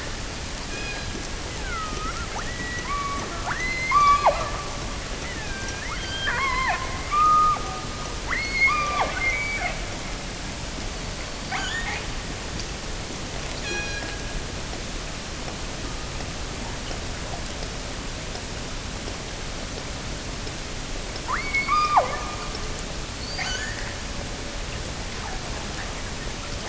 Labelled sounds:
0.7	1.2	killer whale, offshore, 1.4 to 5.3 kHz
1.5	4.6	killer whale, offshore, 0.39 to 5.4 kHz
5.0	9.8	killer whale, offshore, 0.30 to 5.0 kHz
10.9	12.1	killer whale, offshore, 0.59 to 7.3 kHz
13.6	14.5	killer whale, offshore, 1.4 to 7.0 kHz
21.2	22.3	killer whale, offshore, 0.27 to 5.2 kHz
23.1	24.1	killer whale, offshore, 0.64 to 7.2 kHz

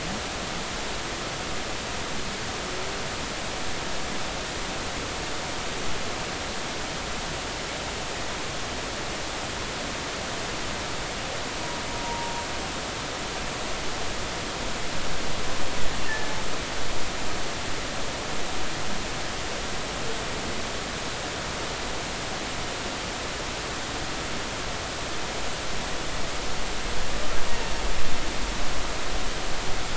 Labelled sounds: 12.0	12.3	humpback whale, 0.86 to 0.99 kHz
16.0	16.3	humpback whale, 1.7 to 1.9 kHz

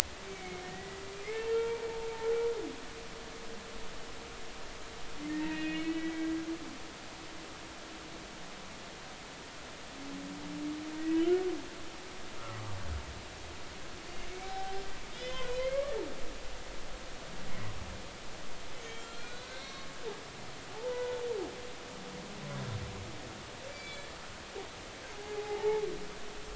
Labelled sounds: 0.2	1.0	humpback whale, 1.8 to 2.3 kHz
1.5	1.8	humpback whale, 0.86 to 3.3 kHz
5.3	6.2	humpback whale, 1.8 to 3.6 kHz
12.5	12.8	humpback whale, 1.1 to 1.2 kHz
14.4	16.0	humpback whale, 0.80 to 3.7 kHz
18.8	19.9	humpback whale, 1.0 to 4.4 kHz
20.7	21.2	humpback whale, 0.80 to 1.5 kHz
23.7	24.1	humpback whale, 2.2 to 4.7 kHz
25.1	25.8	humpback whale, 0.80 to 0.96 kHz

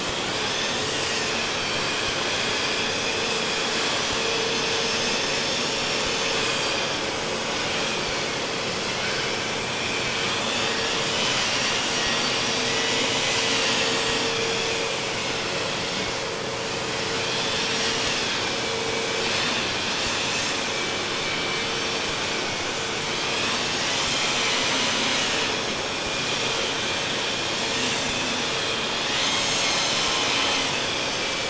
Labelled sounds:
0.0	7.2	vessel noise, 1.2 to 7.9 kHz
10.3	16.3	vessel noise, 1.1 to 8.0 kHz
17.3	22.7	vessel noise, 1.2 to 8.0 kHz
23.4	27.4	vessel noise, 1.4 to 8.0 kHz
29.1	31.4	vessel noise, 1.0 to 8.0 kHz

